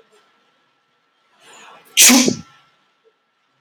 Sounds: Sneeze